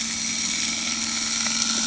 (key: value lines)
label: anthrophony, boat engine
recorder: HydroMoth